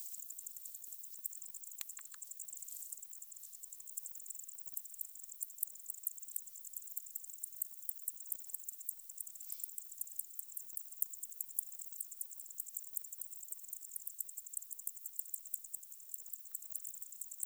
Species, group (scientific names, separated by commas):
Decticus albifrons, Orthoptera